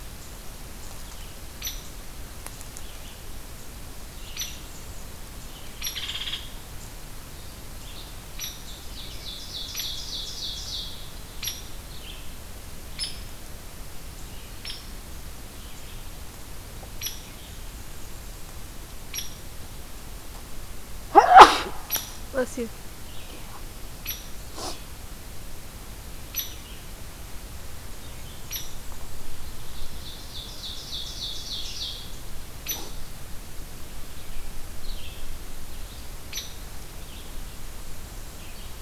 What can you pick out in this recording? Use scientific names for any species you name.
Vireo olivaceus, Dryobates villosus, Seiurus aurocapilla, Setophaga fusca